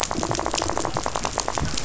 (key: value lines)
label: biophony, rattle
recorder: SoundTrap 500